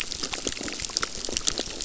{"label": "biophony, crackle", "recorder": "SoundTrap 600"}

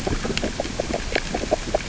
{"label": "biophony, grazing", "recorder": "SoundTrap 600 or HydroMoth"}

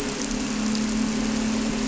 {"label": "anthrophony, boat engine", "recorder": "SoundTrap 300"}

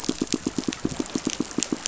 {"label": "biophony, pulse", "recorder": "SoundTrap 500"}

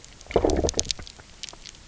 {"label": "biophony, low growl", "recorder": "SoundTrap 300"}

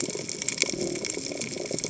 {"label": "biophony, cascading saw", "recorder": "HydroMoth"}
{"label": "biophony", "recorder": "HydroMoth"}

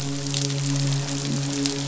{"label": "biophony, midshipman", "recorder": "SoundTrap 500"}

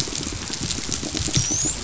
{"label": "biophony, dolphin", "recorder": "SoundTrap 500"}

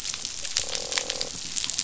{"label": "biophony, croak", "recorder": "SoundTrap 500"}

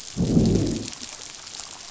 {"label": "biophony, growl", "recorder": "SoundTrap 500"}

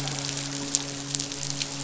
{"label": "biophony, midshipman", "recorder": "SoundTrap 500"}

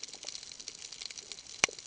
{"label": "ambient", "recorder": "HydroMoth"}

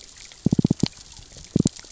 {"label": "biophony, knock", "recorder": "SoundTrap 600 or HydroMoth"}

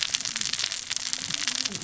{"label": "biophony, cascading saw", "recorder": "SoundTrap 600 or HydroMoth"}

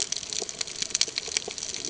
{"label": "ambient", "recorder": "HydroMoth"}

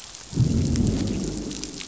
{"label": "biophony, growl", "recorder": "SoundTrap 500"}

